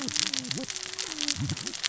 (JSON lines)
{"label": "biophony, cascading saw", "recorder": "SoundTrap 600 or HydroMoth"}